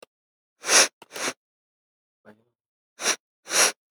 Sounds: Sniff